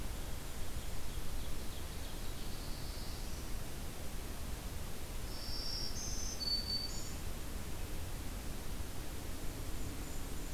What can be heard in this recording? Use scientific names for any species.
Seiurus aurocapilla, Setophaga caerulescens, Setophaga virens, Regulus satrapa